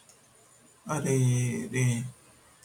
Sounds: Sigh